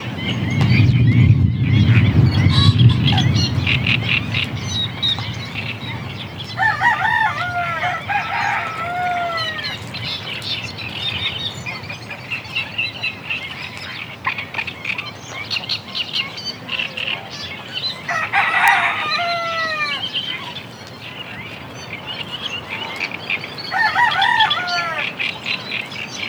Is there a rooster?
yes